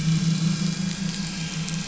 {"label": "anthrophony, boat engine", "recorder": "SoundTrap 500"}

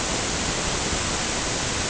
{"label": "ambient", "recorder": "HydroMoth"}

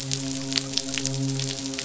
{"label": "biophony, midshipman", "recorder": "SoundTrap 500"}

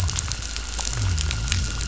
{"label": "biophony", "recorder": "SoundTrap 500"}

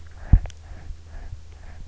{"label": "anthrophony, boat engine", "recorder": "SoundTrap 300"}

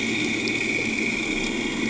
{"label": "anthrophony, boat engine", "recorder": "HydroMoth"}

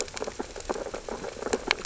{"label": "biophony, sea urchins (Echinidae)", "recorder": "SoundTrap 600 or HydroMoth"}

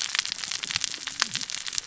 {"label": "biophony, cascading saw", "recorder": "SoundTrap 600 or HydroMoth"}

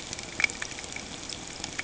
{"label": "ambient", "recorder": "HydroMoth"}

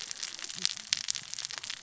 {"label": "biophony, cascading saw", "recorder": "SoundTrap 600 or HydroMoth"}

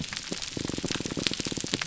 {"label": "biophony, pulse", "recorder": "SoundTrap 300"}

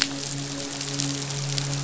{"label": "biophony, midshipman", "recorder": "SoundTrap 500"}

